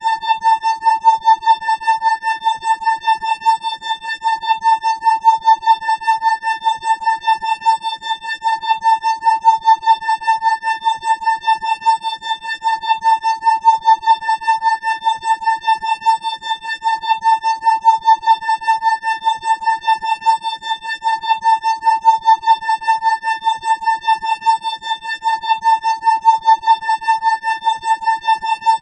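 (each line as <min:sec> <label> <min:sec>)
0:00.0 An electronic sound with a repeating pattern made up of varying pitches and volumes. 0:28.8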